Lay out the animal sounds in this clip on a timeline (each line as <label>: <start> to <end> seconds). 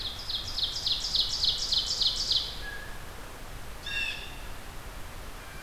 Ovenbird (Seiurus aurocapilla): 0.0 to 2.9 seconds
Blue Jay (Cyanocitta cristata): 2.5 to 5.6 seconds